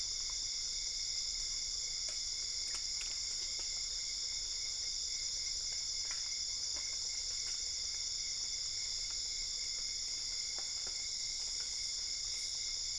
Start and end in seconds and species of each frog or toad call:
none
Cerrado, 1:00am

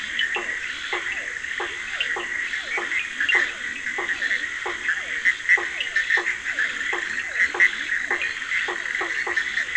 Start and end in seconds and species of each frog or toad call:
0.0	8.0	Leptodactylus latrans
0.0	9.4	Boana faber
0.0	9.7	Physalaemus cuvieri
0.0	9.7	Scinax perereca
0.2	0.4	Sphaenorhynchus surdus
1.9	3.4	Sphaenorhynchus surdus
3.0	9.7	Boana bischoffi
5.7	6.0	Sphaenorhynchus surdus
Atlantic Forest, 10:30pm

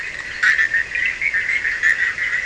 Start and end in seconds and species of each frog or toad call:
0.0	0.9	Boana leptolineata
0.0	2.4	Boana bischoffi
0.0	2.4	Sphaenorhynchus surdus
Atlantic Forest, 1:30am

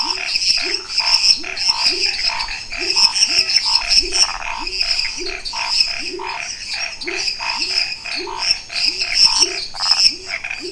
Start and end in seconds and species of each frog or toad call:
0.0	10.7	Boana raniceps
0.0	10.7	Dendropsophus minutus
0.0	10.7	Leptodactylus labyrinthicus
0.0	10.7	Pithecopus azureus
0.0	10.7	Scinax fuscovarius
4.0	4.5	Phyllomedusa sauvagii
9.7	10.1	Phyllomedusa sauvagii
Cerrado, 9:15pm

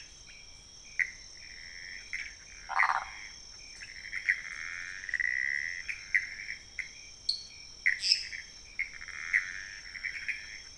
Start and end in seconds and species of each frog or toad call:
0.0	0.4	Leptodactylus podicipinus
1.4	6.9	Pithecopus azureus
2.7	3.1	Phyllomedusa sauvagii
3.7	3.9	Leptodactylus podicipinus
7.2	7.6	Dendropsophus nanus
7.9	10.7	Pithecopus azureus
7.9	8.3	Dendropsophus minutus
Cerrado, 1:15am

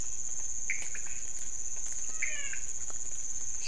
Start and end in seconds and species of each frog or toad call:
0.0	3.6	Leptodactylus podicipinus
1.7	2.9	Physalaemus albonotatus
Cerrado, 3:00am

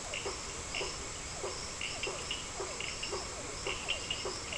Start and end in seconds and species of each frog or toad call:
0.0	4.5	Boana prasina
0.0	4.5	Physalaemus cuvieri
0.0	4.5	Sphaenorhynchus surdus
2.9	4.0	Leptodactylus latrans
Atlantic Forest, 6:45pm

